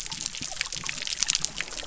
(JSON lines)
{"label": "biophony", "recorder": "SoundTrap 300"}